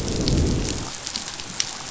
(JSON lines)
{"label": "biophony, growl", "recorder": "SoundTrap 500"}